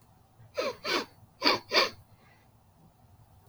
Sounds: Sniff